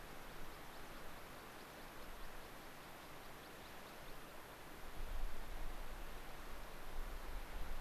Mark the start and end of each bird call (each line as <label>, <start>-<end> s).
American Pipit (Anthus rubescens), 0.0-5.0 s